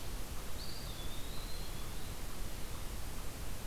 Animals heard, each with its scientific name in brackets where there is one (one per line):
Eastern Wood-Pewee (Contopus virens)